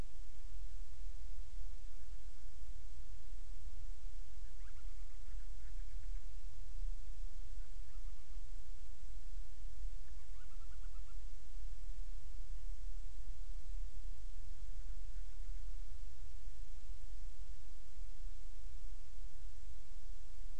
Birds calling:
Band-rumped Storm-Petrel (Hydrobates castro)

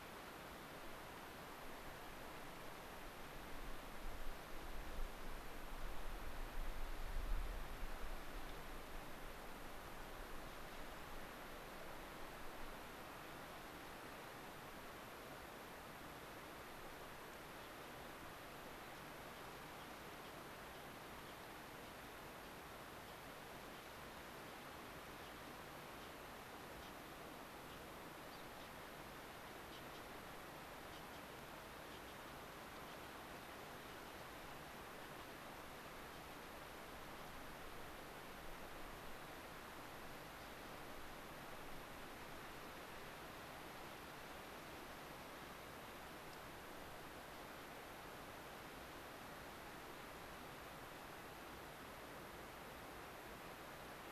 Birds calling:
Gray-crowned Rosy-Finch (Leucosticte tephrocotis)

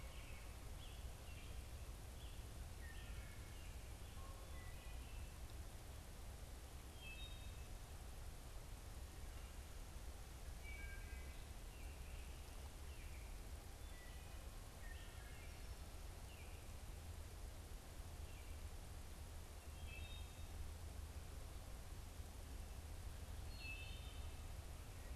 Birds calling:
American Robin (Turdus migratorius), Wood Thrush (Hylocichla mustelina), Canada Goose (Branta canadensis)

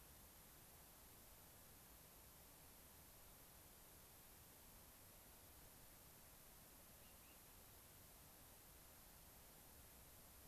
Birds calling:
unidentified bird

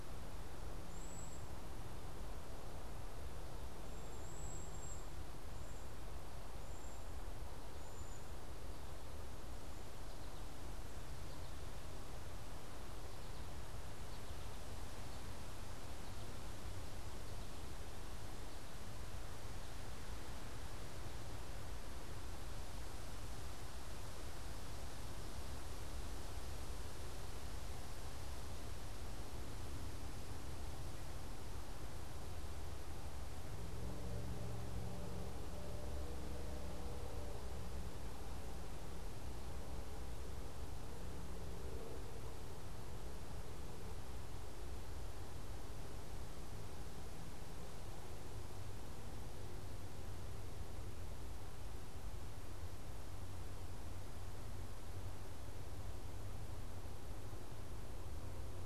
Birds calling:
Cedar Waxwing (Bombycilla cedrorum), American Goldfinch (Spinus tristis)

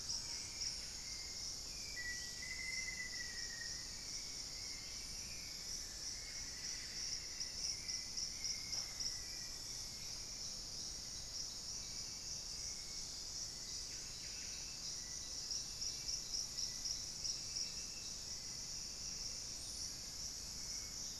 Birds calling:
Buff-breasted Wren (Cantorchilus leucotis), Hauxwell's Thrush (Turdus hauxwelli), Black-faced Antthrush (Formicarius analis)

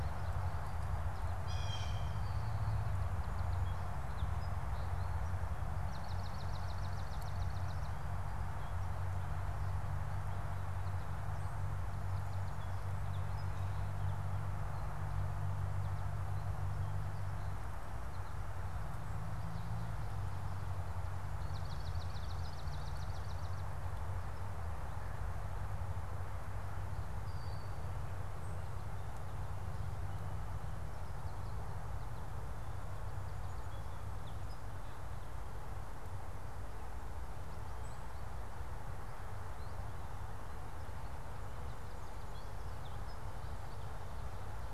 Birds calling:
Blue Jay (Cyanocitta cristata), unidentified bird, Swamp Sparrow (Melospiza georgiana), Song Sparrow (Melospiza melodia)

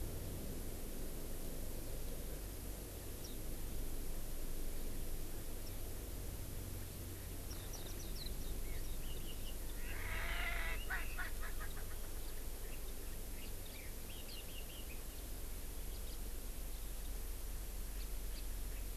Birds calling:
Erckel's Francolin (Pternistis erckelii), Warbling White-eye (Zosterops japonicus)

